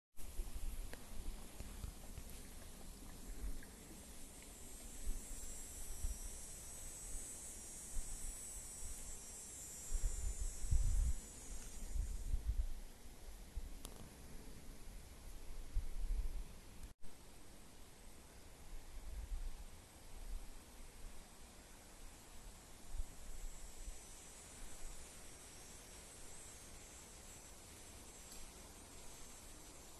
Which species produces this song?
Neotibicen canicularis